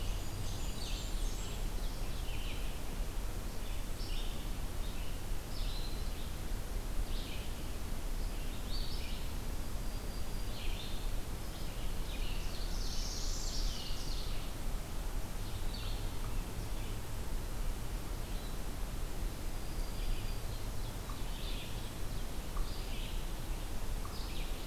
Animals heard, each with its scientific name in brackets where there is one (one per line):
Red-eyed Vireo (Vireo olivaceus)
Black-and-white Warbler (Mniotilta varia)
Black-throated Green Warbler (Setophaga virens)
Ovenbird (Seiurus aurocapilla)
Northern Parula (Setophaga americana)
unknown mammal